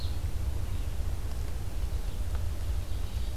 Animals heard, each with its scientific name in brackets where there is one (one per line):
Ovenbird (Seiurus aurocapilla)
Red-eyed Vireo (Vireo olivaceus)